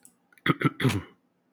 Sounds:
Throat clearing